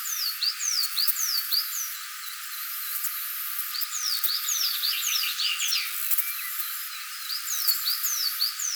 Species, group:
Poecilimon nobilis, Orthoptera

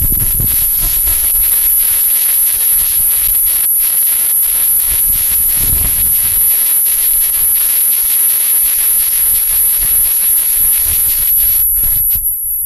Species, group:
Tibicinoides minuta, Cicadidae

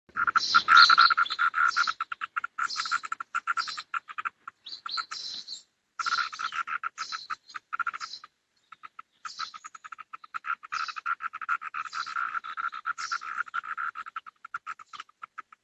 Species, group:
Magicicada septendecim, Cicadidae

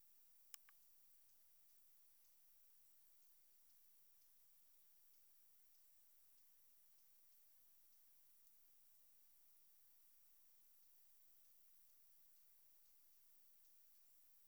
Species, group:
Leptophyes punctatissima, Orthoptera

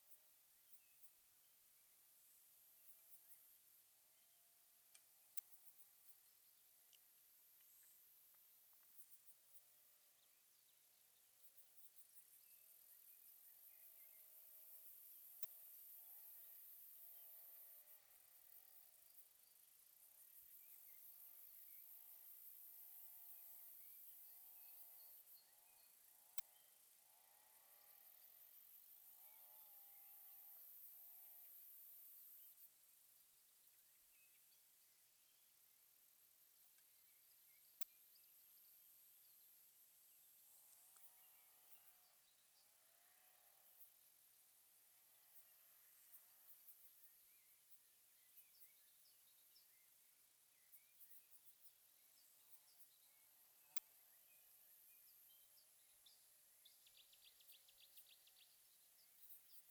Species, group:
Poecilimon jonicus, Orthoptera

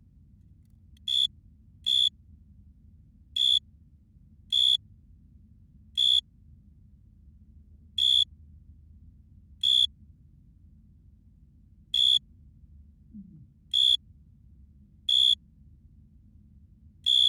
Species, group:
Oecanthus pellucens, Orthoptera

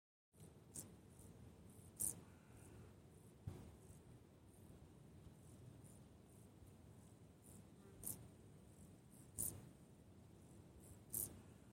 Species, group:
Chorthippus brunneus, Orthoptera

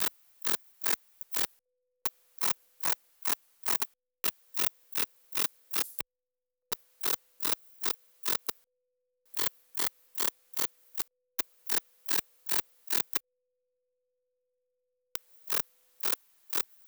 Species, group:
Rhacocleis baccettii, Orthoptera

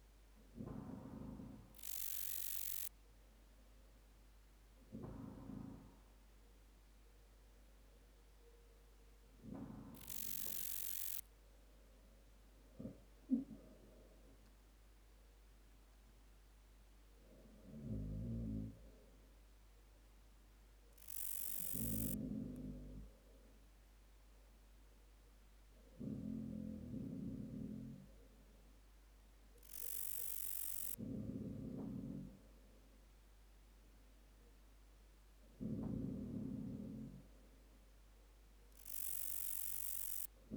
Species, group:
Pachytrachis gracilis, Orthoptera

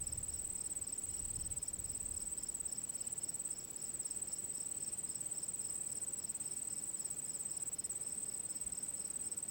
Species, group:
Gryllus pennsylvanicus, Orthoptera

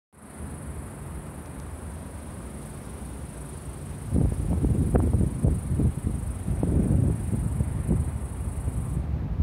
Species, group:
Okanagana canadensis, Cicadidae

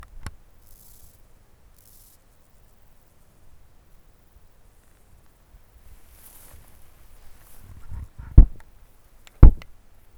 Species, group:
Chorthippus dorsatus, Orthoptera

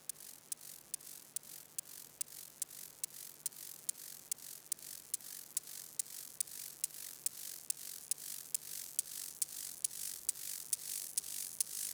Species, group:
Chorthippus mollis, Orthoptera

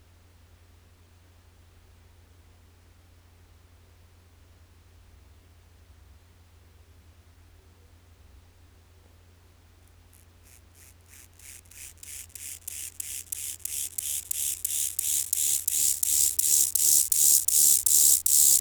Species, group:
Chorthippus mollis, Orthoptera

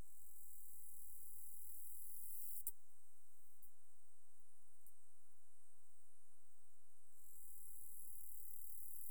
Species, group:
Acrometopa servillea, Orthoptera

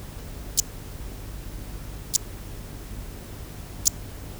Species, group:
Eupholidoptera schmidti, Orthoptera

